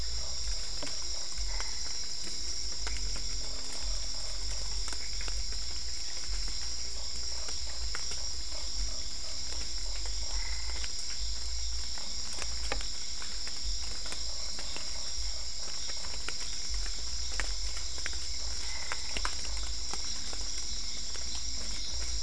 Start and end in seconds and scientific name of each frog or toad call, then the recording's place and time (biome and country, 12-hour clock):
0.0	22.2	Boana lundii
0.8	22.1	Dendropsophus cruzi
1.3	2.0	Boana albopunctata
18.4	19.4	Boana albopunctata
22.0	22.1	Boana albopunctata
Cerrado, Brazil, 8:30pm